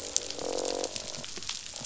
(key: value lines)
label: biophony, croak
recorder: SoundTrap 500